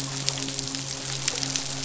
{"label": "biophony, midshipman", "recorder": "SoundTrap 500"}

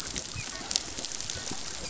{"label": "biophony, dolphin", "recorder": "SoundTrap 500"}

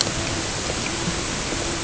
{"label": "ambient", "recorder": "HydroMoth"}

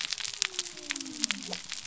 {"label": "biophony", "recorder": "SoundTrap 300"}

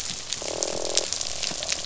{"label": "biophony, croak", "recorder": "SoundTrap 500"}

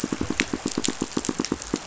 {"label": "biophony, pulse", "recorder": "SoundTrap 500"}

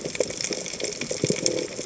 {"label": "biophony", "recorder": "HydroMoth"}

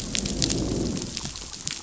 {"label": "biophony, growl", "recorder": "SoundTrap 500"}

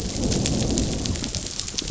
{"label": "biophony, growl", "recorder": "SoundTrap 500"}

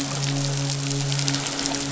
{"label": "biophony, midshipman", "recorder": "SoundTrap 500"}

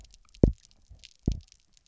{"label": "biophony, double pulse", "recorder": "SoundTrap 300"}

